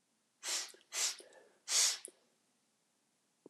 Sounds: Sniff